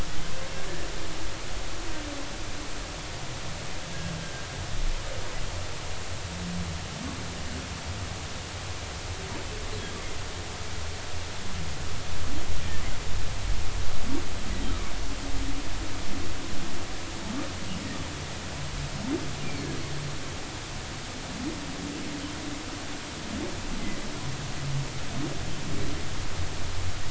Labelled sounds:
4.2	4.4	humpback whale, 1.5 to 1.6 kHz

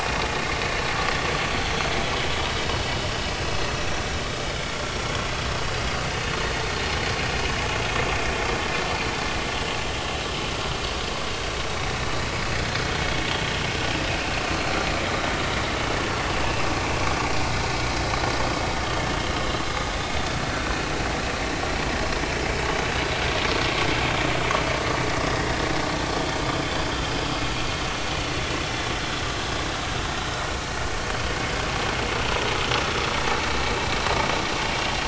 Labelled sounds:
24.8	25.0	vessel noise, 4.4 to 4.6 kHz
27.0	27.2	vessel noise, 3.0 to 3.3 kHz

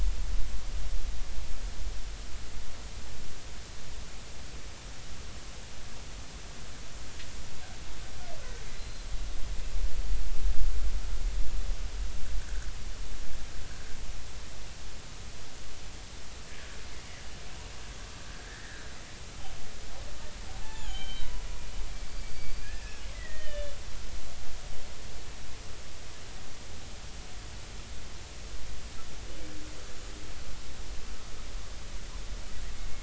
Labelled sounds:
8.7	9.1	killer whale, Bigg's (transient), 3.9 to 4.2 kHz
18.5	18.8	killer whale, Bigg's (transient), 1.6 to 2.0 kHz
20.6	21.3	killer whale, Bigg's (transient), 0.80 to 7.4 kHz
22.1	23.7	killer whale, Bigg's (transient), 1.6 to 4.9 kHz

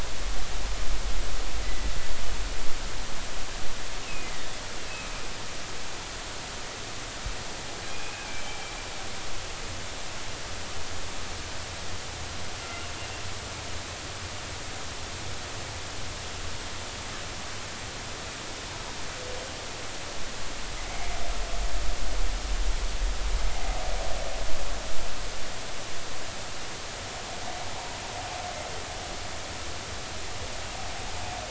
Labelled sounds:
1.6	1.9	humpback whale, 1.95 to 2.05 kHz
4.1	4.3	humpback whale, 2.4 to 2.7 kHz
7.9	8.6	humpback whale, 2.3 to 2.6 kHz
12.6	12.9	humpback whale, 1.3 to 1.4 kHz

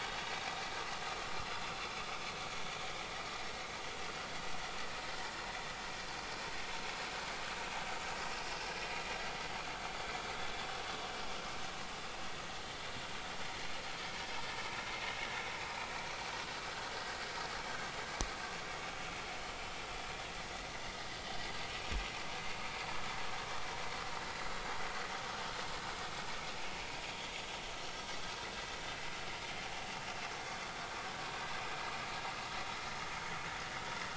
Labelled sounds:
21.7	22.0	vessel noise, 2.4 to 2.6 kHz

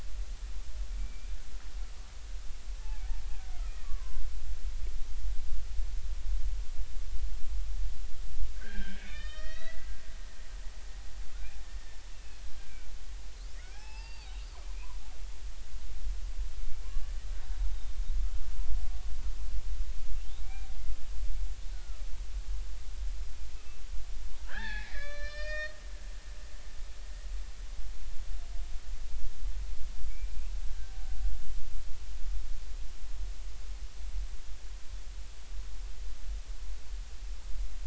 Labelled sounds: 0.9	1.4	killer whale, Bigg's (transient), 2.1 to 2.5 kHz
2.8	4.2	killer whale, Bigg's (transient), 0.80 to 2.7 kHz
8.6	9.9	killer whale, Bigg's (transient), 1.2 to 5.7 kHz
12.1	12.9	killer whale, Bigg's (transient), 1.4 to 2.8 kHz
13.6	14.4	killer whale, Bigg's (transient), 0.80 to 5.5 kHz
20.4	20.7	killer whale, Bigg's (transient), 2.2 to 2.5 kHz
21.7	22.0	killer whale, Bigg's (transient), 1.2 to 1.6 kHz
24.4	25.8	killer whale, Bigg's (transient), 0.80 to 6.5 kHz
30.1	30.4	killer whale, Bigg's (transient), 2.2 to 2.6 kHz

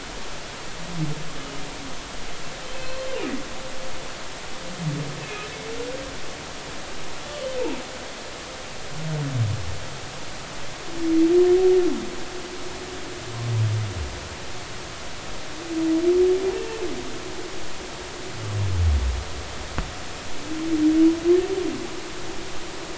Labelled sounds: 2.7	3.1	humpback whale, 2.5 to 4.3 kHz
5.2	5.5	humpback whale, 2.4 to 2.7 kHz

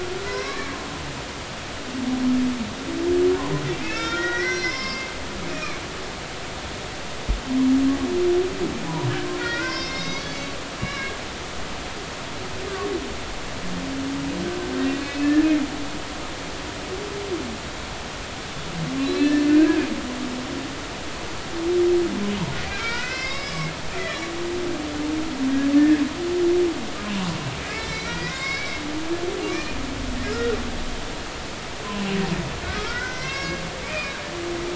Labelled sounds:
0.2	0.7	humpback whale, 0.96 to 2.3 kHz
3.7	5.8	humpback whale, 0.96 to 5.9 kHz
9.3	10.5	humpback whale, 0.96 to 6.0 kHz
10.8	11.2	humpback whale, 1.1 to 2.3 kHz
12.7	12.9	humpback whale, 1.1 to 1.2 kHz
16.0	16.3	humpback whale, 2.5 to 2.7 kHz
19.0	19.5	humpback whale, 1.7 to 4.2 kHz
22.8	24.2	humpback whale, 1.0 to 5.4 kHz
25.7	26.0	humpback whale, 1.6 to 1.9 kHz
27.6	28.8	humpback whale, 0.96 to 5.5 kHz
29.5	29.7	humpback whale, 2.2 to 2.5 kHz
30.3	30.6	humpback whale, 1.2 to 1.5 kHz
32.8	34.2	humpback whale, 1.0 to 6.1 kHz

